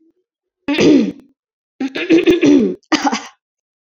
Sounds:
Throat clearing